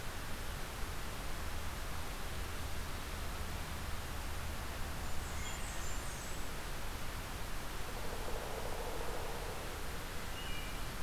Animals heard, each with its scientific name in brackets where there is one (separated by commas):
Blackburnian Warbler (Setophaga fusca), Wood Thrush (Hylocichla mustelina)